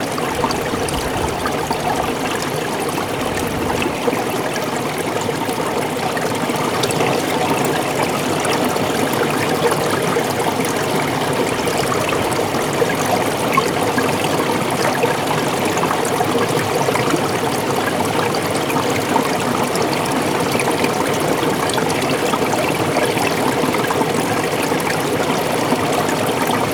is water flowing?
yes